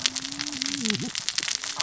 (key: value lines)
label: biophony, cascading saw
recorder: SoundTrap 600 or HydroMoth